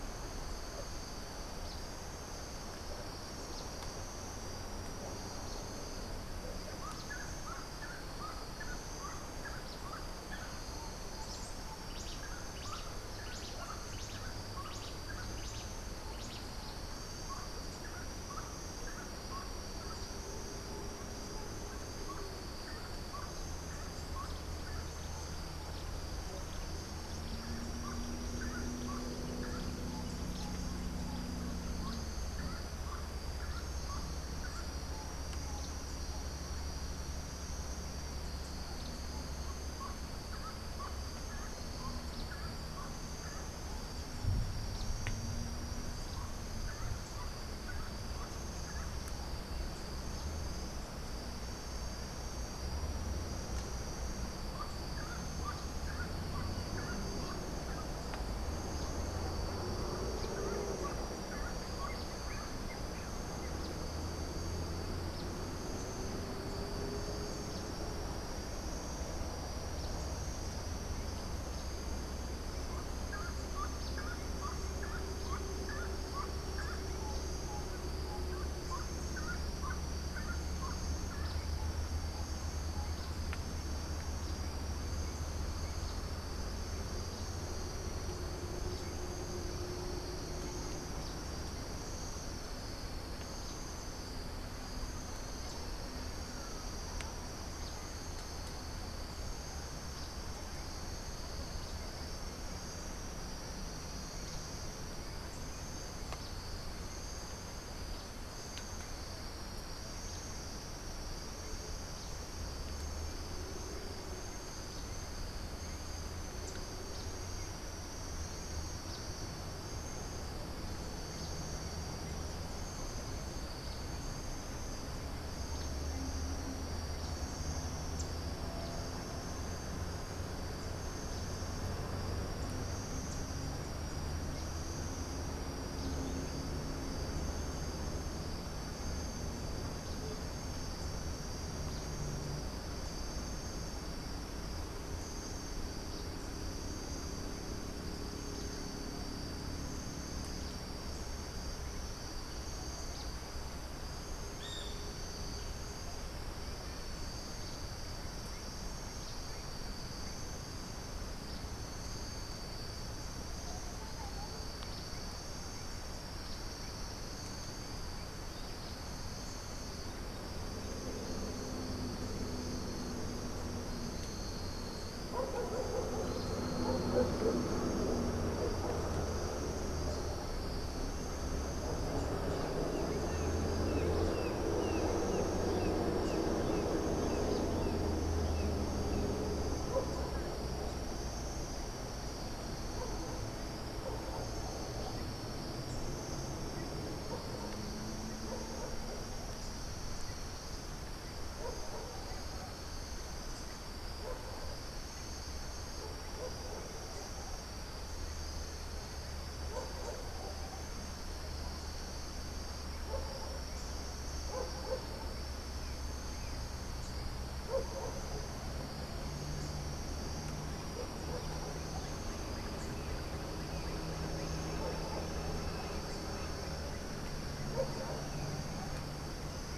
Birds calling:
Gray-cowled Wood-Rail (Aramides cajaneus)
Cabanis's Wren (Cantorchilus modestus)
Brown Jay (Psilorhinus morio)

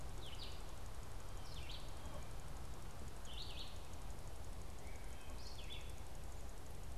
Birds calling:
Red-eyed Vireo (Vireo olivaceus)
Wood Thrush (Hylocichla mustelina)

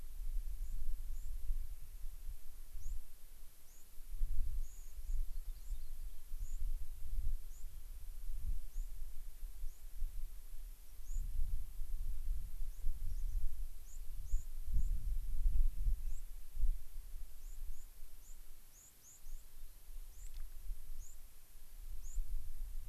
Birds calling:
White-crowned Sparrow (Zonotrichia leucophrys)
unidentified bird

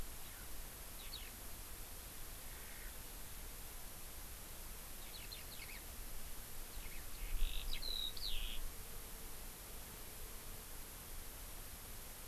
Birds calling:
Eurasian Skylark (Alauda arvensis)

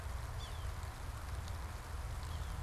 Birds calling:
Yellow-bellied Sapsucker (Sphyrapicus varius)

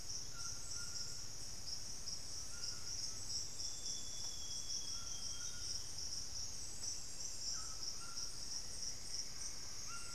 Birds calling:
unidentified bird
Amazonian Grosbeak (Cyanoloxia rothschildii)
White-throated Toucan (Ramphastos tucanus)
Plumbeous Antbird (Myrmelastes hyperythrus)

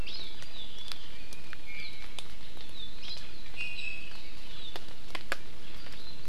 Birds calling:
Hawaii Amakihi (Chlorodrepanis virens)
Iiwi (Drepanis coccinea)

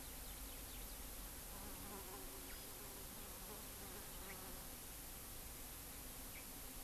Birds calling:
Eurasian Skylark (Alauda arvensis)

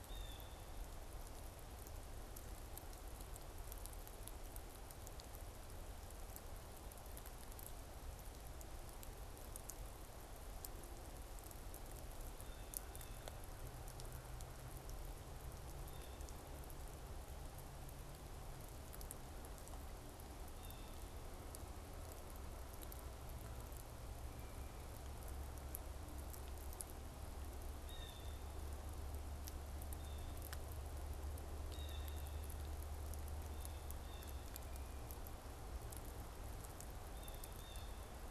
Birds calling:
Blue Jay (Cyanocitta cristata)

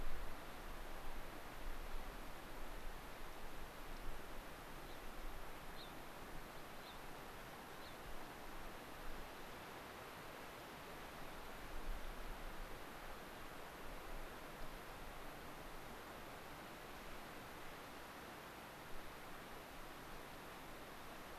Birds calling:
Gray-crowned Rosy-Finch (Leucosticte tephrocotis)

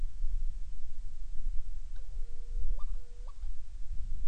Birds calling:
Hawaiian Petrel (Pterodroma sandwichensis)

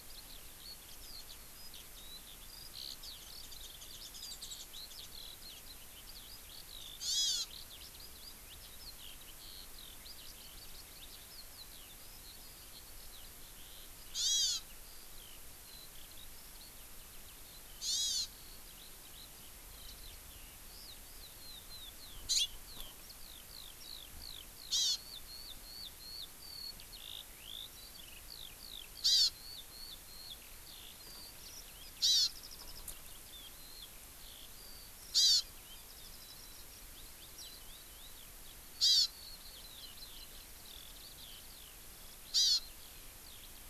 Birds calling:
Hawaii Amakihi (Chlorodrepanis virens)
Warbling White-eye (Zosterops japonicus)
Eurasian Skylark (Alauda arvensis)

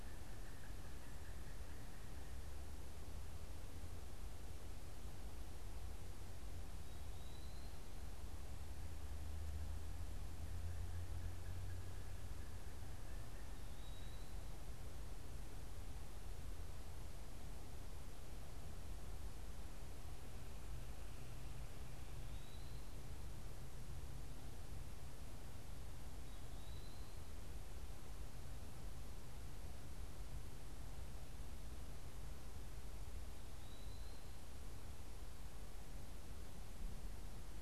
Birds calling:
Eastern Wood-Pewee (Contopus virens)
Pileated Woodpecker (Dryocopus pileatus)

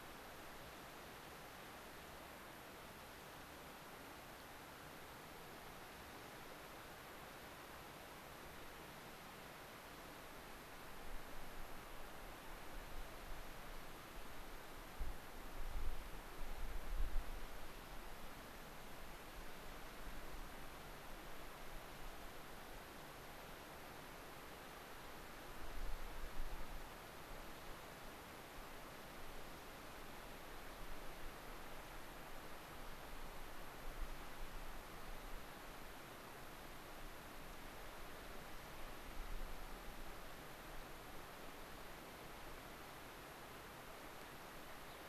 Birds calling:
Gray-crowned Rosy-Finch (Leucosticte tephrocotis)

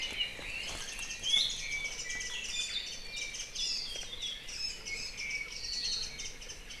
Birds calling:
Iiwi (Drepanis coccinea)
Warbling White-eye (Zosterops japonicus)
Apapane (Himatione sanguinea)

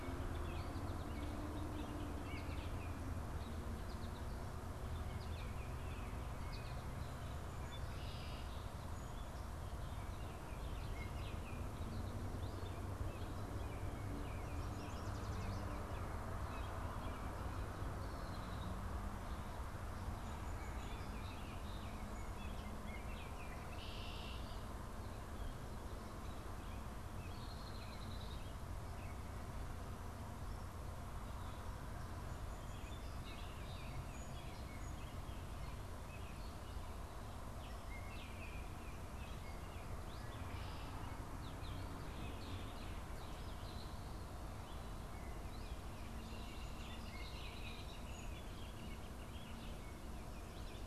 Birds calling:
Red-winged Blackbird (Agelaius phoeniceus)
American Robin (Turdus migratorius)
Northern Flicker (Colaptes auratus)

